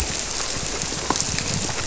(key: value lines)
label: biophony
recorder: SoundTrap 300